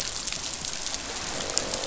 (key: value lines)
label: biophony, croak
recorder: SoundTrap 500